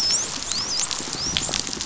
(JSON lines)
{"label": "biophony", "recorder": "SoundTrap 500"}
{"label": "biophony, dolphin", "recorder": "SoundTrap 500"}